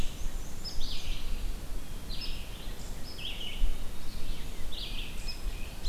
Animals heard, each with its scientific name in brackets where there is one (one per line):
Black-and-white Warbler (Mniotilta varia)
Tufted Titmouse (Baeolophus bicolor)
Blue Jay (Cyanocitta cristata)
Red-eyed Vireo (Vireo olivaceus)
Hairy Woodpecker (Dryobates villosus)